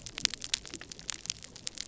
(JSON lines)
{"label": "biophony", "recorder": "SoundTrap 300"}